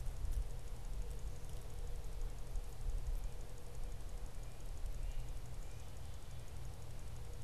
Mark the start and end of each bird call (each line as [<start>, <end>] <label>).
[4.16, 6.96] Red-breasted Nuthatch (Sitta canadensis)
[4.96, 5.26] Great Crested Flycatcher (Myiarchus crinitus)